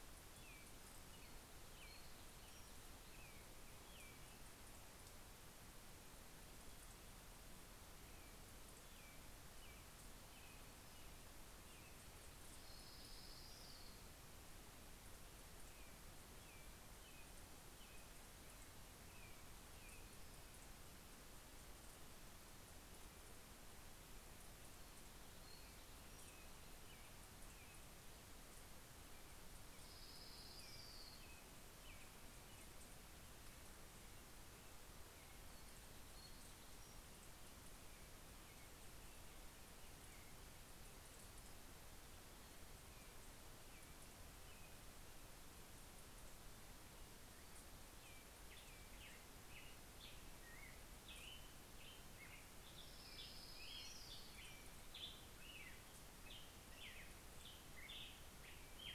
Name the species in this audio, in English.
American Robin, Orange-crowned Warbler, Pacific-slope Flycatcher, Black-headed Grosbeak